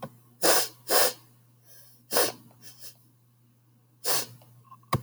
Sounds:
Sniff